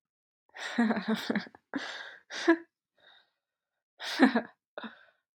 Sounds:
Laughter